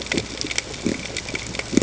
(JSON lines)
{"label": "ambient", "recorder": "HydroMoth"}